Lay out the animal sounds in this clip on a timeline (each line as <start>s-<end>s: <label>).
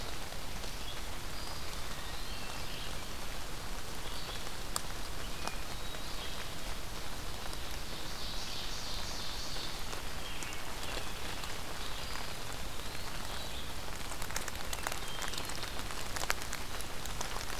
0.0s-13.8s: Red-eyed Vireo (Vireo olivaceus)
1.3s-2.6s: Eastern Wood-Pewee (Contopus virens)
1.7s-3.0s: Hermit Thrush (Catharus guttatus)
4.9s-6.5s: Hermit Thrush (Catharus guttatus)
7.4s-10.1s: Ovenbird (Seiurus aurocapilla)
10.1s-11.3s: Hermit Thrush (Catharus guttatus)
11.8s-13.2s: Eastern Wood-Pewee (Contopus virens)
14.4s-15.6s: Hermit Thrush (Catharus guttatus)